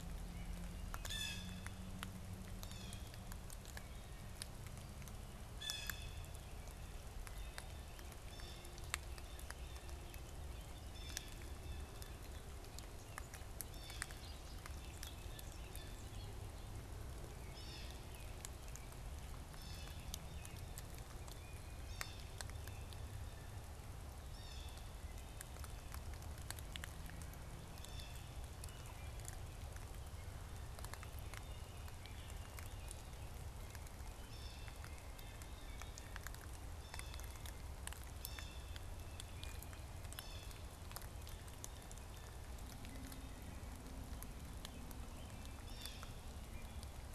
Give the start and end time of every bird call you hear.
0.9s-14.3s: Blue Jay (Cyanocitta cristata)
11.4s-16.5s: Bobolink (Dolichonyx oryzivorus)
17.4s-28.5s: Blue Jay (Cyanocitta cristata)
34.1s-40.8s: Blue Jay (Cyanocitta cristata)
45.6s-46.2s: Blue Jay (Cyanocitta cristata)

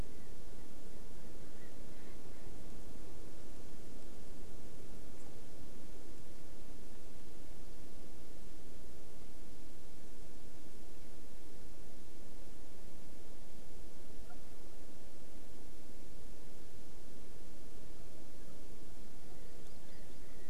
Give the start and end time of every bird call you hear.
0.0s-2.5s: Erckel's Francolin (Pternistis erckelii)
19.6s-20.3s: Hawaii Amakihi (Chlorodrepanis virens)

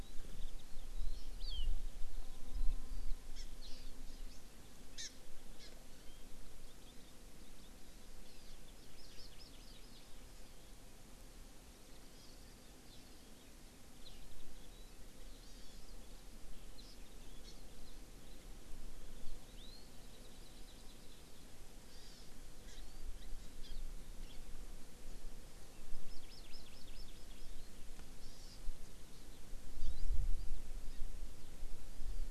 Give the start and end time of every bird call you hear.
0.0s-1.3s: Eurasian Skylark (Alauda arvensis)
1.3s-1.6s: Hawaii Amakihi (Chlorodrepanis virens)
3.3s-4.2s: Hawaii Amakihi (Chlorodrepanis virens)
4.9s-5.0s: Hawaii Amakihi (Chlorodrepanis virens)
5.6s-5.7s: Hawaii Amakihi (Chlorodrepanis virens)
6.0s-6.2s: Warbling White-eye (Zosterops japonicus)
6.6s-7.7s: Hawaii Amakihi (Chlorodrepanis virens)
8.2s-10.0s: Hawaii Amakihi (Chlorodrepanis virens)
12.1s-12.3s: Hawaii Amakihi (Chlorodrepanis virens)
12.8s-13.1s: Hawaii Amakihi (Chlorodrepanis virens)
15.4s-15.8s: Hawaii Amakihi (Chlorodrepanis virens)
16.7s-16.9s: Hawaii Amakihi (Chlorodrepanis virens)
17.4s-17.5s: Hawaii Amakihi (Chlorodrepanis virens)
20.0s-21.4s: Hawaii Amakihi (Chlorodrepanis virens)
21.9s-22.2s: Hawaii Amakihi (Chlorodrepanis virens)
22.6s-22.7s: Hawaii Amakihi (Chlorodrepanis virens)
22.7s-23.0s: Warbling White-eye (Zosterops japonicus)
23.1s-23.2s: Hawaii Amakihi (Chlorodrepanis virens)
23.6s-23.8s: Hawaii Amakihi (Chlorodrepanis virens)
24.2s-24.4s: Hawaii Amakihi (Chlorodrepanis virens)
26.0s-27.5s: Hawaii Amakihi (Chlorodrepanis virens)
28.2s-28.6s: Hawaii Amakihi (Chlorodrepanis virens)
29.7s-29.9s: Hawaii Amakihi (Chlorodrepanis virens)

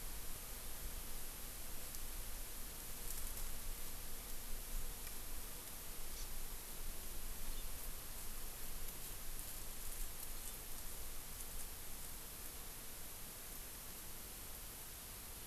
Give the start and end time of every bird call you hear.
6.1s-6.3s: Hawaii Amakihi (Chlorodrepanis virens)
7.5s-7.7s: Hawaii Amakihi (Chlorodrepanis virens)
10.4s-10.6s: Hawaii Amakihi (Chlorodrepanis virens)

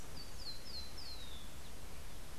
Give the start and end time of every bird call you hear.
0.0s-1.6s: Rufous-collared Sparrow (Zonotrichia capensis)

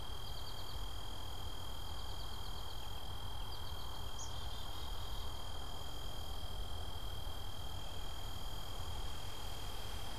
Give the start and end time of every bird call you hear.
0.1s-4.0s: American Goldfinch (Spinus tristis)
4.0s-5.6s: Black-capped Chickadee (Poecile atricapillus)

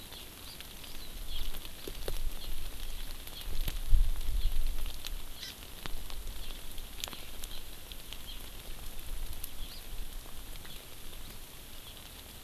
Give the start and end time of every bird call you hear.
0.1s-0.6s: Hawaii Amakihi (Chlorodrepanis virens)
1.3s-1.5s: Hawaii Amakihi (Chlorodrepanis virens)
2.4s-2.5s: Hawaii Amakihi (Chlorodrepanis virens)
3.4s-3.5s: Hawaii Amakihi (Chlorodrepanis virens)
4.4s-4.5s: Hawaii Amakihi (Chlorodrepanis virens)
5.4s-5.6s: Hawaii Amakihi (Chlorodrepanis virens)
7.5s-7.6s: Hawaii Amakihi (Chlorodrepanis virens)
8.3s-8.4s: Hawaii Amakihi (Chlorodrepanis virens)
9.6s-9.9s: Hawaii Amakihi (Chlorodrepanis virens)

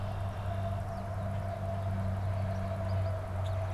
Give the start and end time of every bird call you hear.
0.0s-0.9s: Red-winged Blackbird (Agelaius phoeniceus)
0.0s-3.7s: American Goldfinch (Spinus tristis)
3.4s-3.5s: Common Grackle (Quiscalus quiscula)

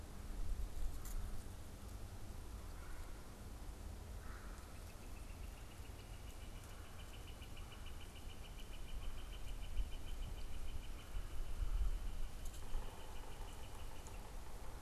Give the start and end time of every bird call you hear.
2.6s-4.8s: unidentified bird
4.6s-14.3s: Northern Flicker (Colaptes auratus)
12.5s-14.8s: Yellow-bellied Sapsucker (Sphyrapicus varius)

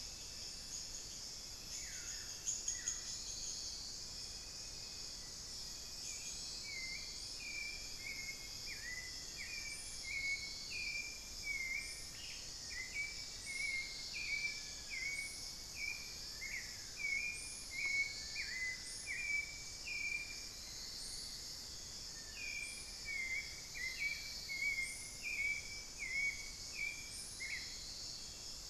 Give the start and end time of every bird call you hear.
0.0s-28.7s: unidentified bird
1.7s-3.2s: Buff-throated Woodcreeper (Xiphorhynchus guttatus)
5.8s-28.7s: Hauxwell's Thrush (Turdus hauxwelli)
7.6s-24.4s: Long-billed Woodcreeper (Nasica longirostris)
12.0s-12.6s: Ash-throated Gnateater (Conopophaga peruviana)
20.2s-21.8s: Amazonian Barred-Woodcreeper (Dendrocolaptes certhia)

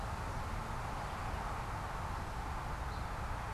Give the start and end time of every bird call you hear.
2.4s-3.5s: Northern Waterthrush (Parkesia noveboracensis)

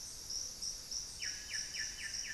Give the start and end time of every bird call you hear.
0.0s-2.3s: Solitary Black Cacique (Cacicus solitarius)
0.1s-1.4s: Lemon-throated Barbet (Eubucco richardsoni)

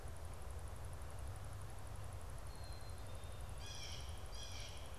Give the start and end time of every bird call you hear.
2.2s-3.5s: Black-capped Chickadee (Poecile atricapillus)
3.4s-5.0s: Blue Jay (Cyanocitta cristata)

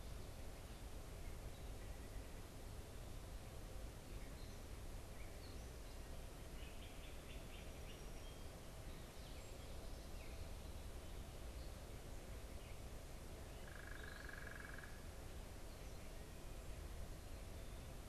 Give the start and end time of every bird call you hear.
6.5s-8.6s: Great Crested Flycatcher (Myiarchus crinitus)
9.0s-10.8s: Gray Catbird (Dumetella carolinensis)
13.6s-15.1s: unidentified bird

